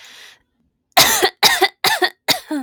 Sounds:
Cough